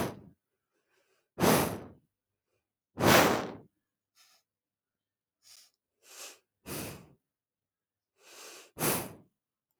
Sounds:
Sniff